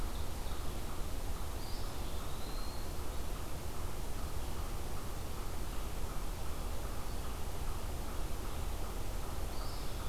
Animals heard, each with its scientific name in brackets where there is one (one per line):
unknown mammal
Eastern Wood-Pewee (Contopus virens)
Ovenbird (Seiurus aurocapilla)